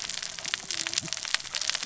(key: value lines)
label: biophony, cascading saw
recorder: SoundTrap 600 or HydroMoth